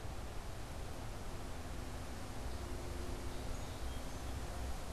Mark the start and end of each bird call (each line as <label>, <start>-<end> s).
Song Sparrow (Melospiza melodia), 2.4-4.8 s